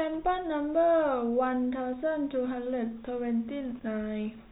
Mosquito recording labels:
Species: no mosquito; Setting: cup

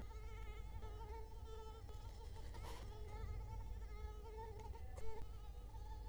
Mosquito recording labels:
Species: Culex quinquefasciatus; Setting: cup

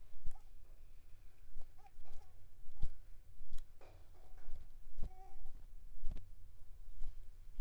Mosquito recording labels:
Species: Anopheles coustani; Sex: female; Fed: unfed; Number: one; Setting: cup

